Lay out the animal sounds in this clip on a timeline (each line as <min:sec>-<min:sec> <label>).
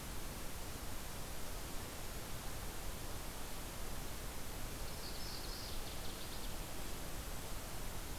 0:04.7-0:05.8 Black-throated Blue Warbler (Setophaga caerulescens)
0:05.2-0:06.7 Northern Waterthrush (Parkesia noveboracensis)
0:06.3-0:08.2 Golden-crowned Kinglet (Regulus satrapa)